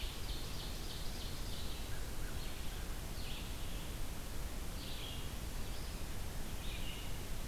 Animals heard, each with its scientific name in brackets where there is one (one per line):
Ovenbird (Seiurus aurocapilla)
Red-eyed Vireo (Vireo olivaceus)
American Crow (Corvus brachyrhynchos)